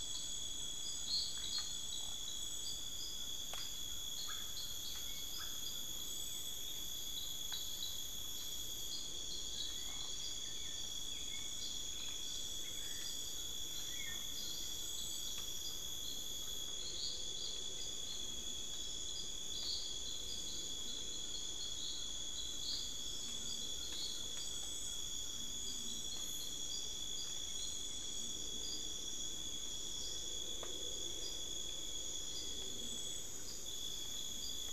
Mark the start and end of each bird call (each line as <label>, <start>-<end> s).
Ferruginous Pygmy-Owl (Glaucidium brasilianum), 0.0-6.1 s
Black-billed Thrush (Turdus ignobilis), 3.6-14.7 s
Ferruginous Pygmy-Owl (Glaucidium brasilianum), 11.3-15.8 s
Ferruginous Pygmy-Owl (Glaucidium brasilianum), 20.5-25.2 s
unidentified bird, 33.0-33.7 s